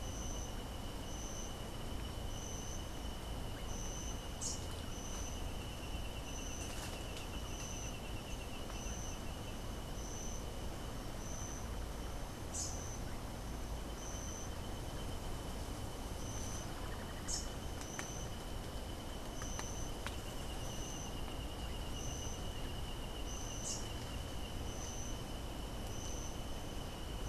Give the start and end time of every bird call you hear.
4.2s-4.7s: Rufous-capped Warbler (Basileuterus rufifrons)
12.4s-12.9s: Rufous-capped Warbler (Basileuterus rufifrons)
17.1s-17.6s: Rufous-capped Warbler (Basileuterus rufifrons)
23.5s-24.0s: Rufous-capped Warbler (Basileuterus rufifrons)

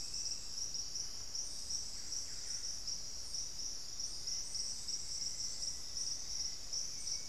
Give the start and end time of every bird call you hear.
1.5s-2.9s: Buff-breasted Wren (Cantorchilus leucotis)
4.2s-5.9s: Black-faced Antthrush (Formicarius analis)

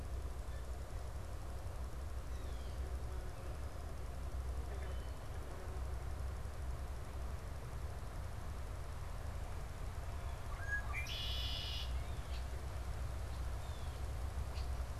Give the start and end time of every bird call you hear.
0.3s-2.9s: Blue Jay (Cyanocitta cristata)
10.4s-15.0s: Red-winged Blackbird (Agelaius phoeniceus)
13.5s-14.2s: Blue Jay (Cyanocitta cristata)

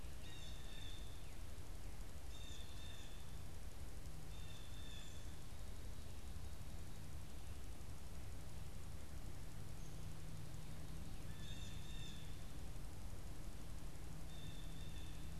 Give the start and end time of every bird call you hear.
0.0s-5.8s: Blue Jay (Cyanocitta cristata)
11.1s-15.2s: Blue Jay (Cyanocitta cristata)

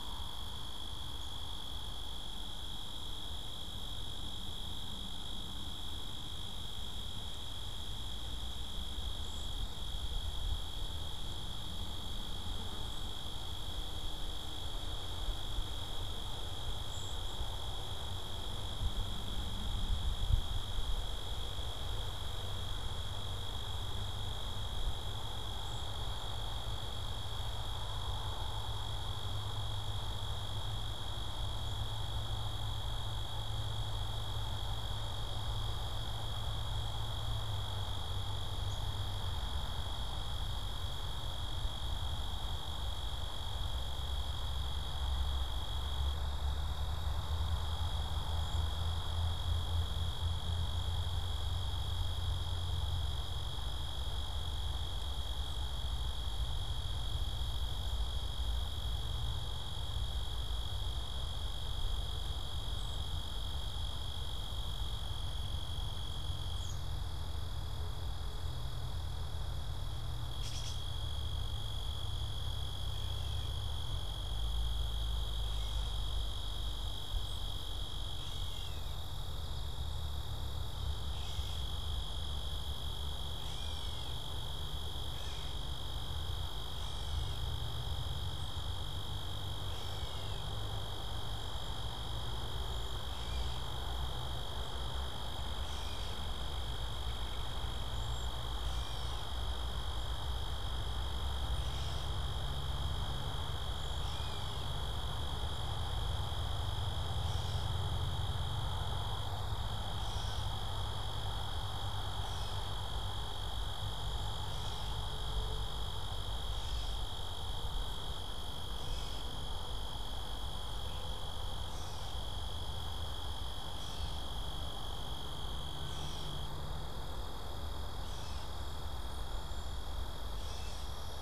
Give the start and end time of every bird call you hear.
9.1s-9.5s: Cedar Waxwing (Bombycilla cedrorum)
16.8s-17.5s: Cedar Waxwing (Bombycilla cedrorum)
25.5s-26.6s: Cedar Waxwing (Bombycilla cedrorum)
38.6s-38.8s: Cedar Waxwing (Bombycilla cedrorum)
48.3s-48.7s: Cedar Waxwing (Bombycilla cedrorum)
66.4s-66.9s: American Robin (Turdus migratorius)
70.3s-70.8s: Gray Catbird (Dumetella carolinensis)
72.8s-107.8s: Gray Catbird (Dumetella carolinensis)
97.8s-98.4s: Cedar Waxwing (Bombycilla cedrorum)
109.9s-131.2s: Gray Catbird (Dumetella carolinensis)

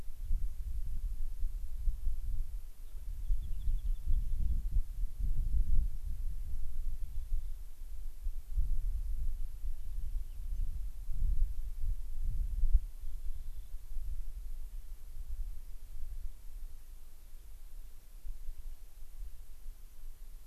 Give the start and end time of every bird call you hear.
0.1s-0.3s: Gray-crowned Rosy-Finch (Leucosticte tephrocotis)
2.7s-2.9s: Gray-crowned Rosy-Finch (Leucosticte tephrocotis)
3.1s-4.7s: Rock Wren (Salpinctes obsoletus)
6.9s-7.6s: Rock Wren (Salpinctes obsoletus)
9.9s-10.6s: Rock Wren (Salpinctes obsoletus)
10.5s-10.6s: Fox Sparrow (Passerella iliaca)
12.8s-13.8s: Rock Wren (Salpinctes obsoletus)

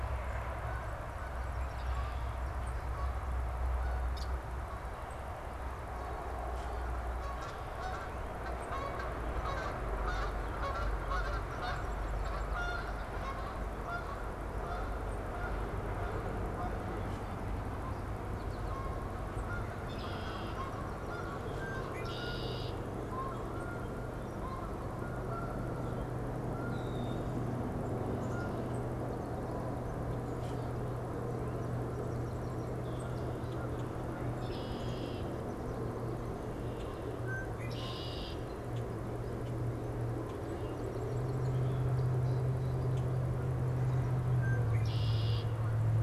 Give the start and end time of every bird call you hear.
0.0s-29.2s: Canada Goose (Branta canadensis)
3.7s-4.5s: Red-winged Blackbird (Agelaius phoeniceus)
11.0s-13.6s: Song Sparrow (Melospiza melodia)
19.6s-20.9s: Red-winged Blackbird (Agelaius phoeniceus)
20.4s-22.4s: Song Sparrow (Melospiza melodia)
21.7s-23.1s: Red-winged Blackbird (Agelaius phoeniceus)
26.4s-27.4s: Common Grackle (Quiscalus quiscula)
27.9s-29.4s: Black-capped Chickadee (Poecile atricapillus)
30.1s-30.8s: Common Grackle (Quiscalus quiscula)
31.2s-34.0s: Song Sparrow (Melospiza melodia)
33.3s-34.1s: unidentified bird
34.2s-35.6s: Red-winged Blackbird (Agelaius phoeniceus)
36.3s-37.1s: Common Grackle (Quiscalus quiscula)
37.0s-38.5s: Red-winged Blackbird (Agelaius phoeniceus)
38.5s-43.7s: Common Grackle (Quiscalus quiscula)
40.1s-42.9s: Song Sparrow (Melospiza melodia)
44.0s-45.8s: Red-winged Blackbird (Agelaius phoeniceus)

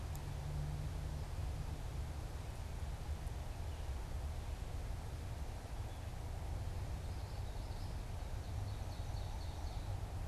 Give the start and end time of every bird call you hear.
6.8s-8.1s: Common Yellowthroat (Geothlypis trichas)
8.0s-10.2s: Ovenbird (Seiurus aurocapilla)

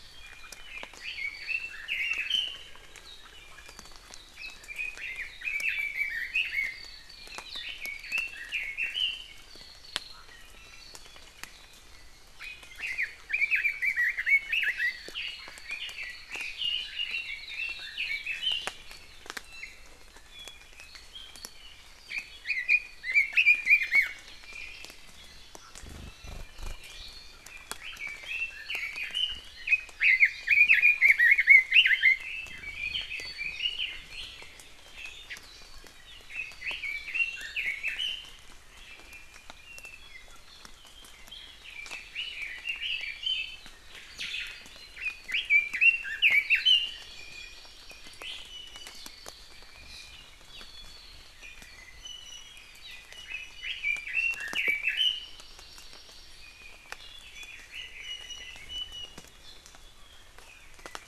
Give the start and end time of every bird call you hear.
0.1s-2.7s: Red-billed Leiothrix (Leiothrix lutea)
4.3s-6.8s: Red-billed Leiothrix (Leiothrix lutea)
7.1s-9.5s: Red-billed Leiothrix (Leiothrix lutea)
10.2s-10.9s: Iiwi (Drepanis coccinea)
12.4s-15.0s: Red-billed Leiothrix (Leiothrix lutea)
15.6s-18.7s: Red-billed Leiothrix (Leiothrix lutea)
19.4s-20.0s: Iiwi (Drepanis coccinea)
20.3s-20.8s: Iiwi (Drepanis coccinea)
22.1s-24.1s: Red-billed Leiothrix (Leiothrix lutea)
27.5s-34.3s: Red-billed Leiothrix (Leiothrix lutea)
36.3s-38.4s: Red-billed Leiothrix (Leiothrix lutea)
41.3s-43.7s: Red-billed Leiothrix (Leiothrix lutea)
44.9s-47.1s: Red-billed Leiothrix (Leiothrix lutea)
46.9s-48.5s: Hawaii Amakihi (Chlorodrepanis virens)
47.1s-47.8s: Iiwi (Drepanis coccinea)
48.4s-49.0s: Iiwi (Drepanis coccinea)
50.4s-51.1s: Iiwi (Drepanis coccinea)
51.8s-52.7s: Iiwi (Drepanis coccinea)
52.8s-53.1s: Hawaii Amakihi (Chlorodrepanis virens)
53.1s-55.5s: Red-billed Leiothrix (Leiothrix lutea)
55.1s-56.8s: Hawaii Amakihi (Chlorodrepanis virens)
56.4s-57.7s: Iiwi (Drepanis coccinea)
57.2s-58.7s: Red-billed Leiothrix (Leiothrix lutea)
58.0s-59.2s: Iiwi (Drepanis coccinea)

